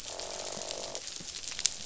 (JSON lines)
{"label": "biophony, croak", "recorder": "SoundTrap 500"}